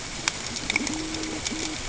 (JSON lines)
{"label": "ambient", "recorder": "HydroMoth"}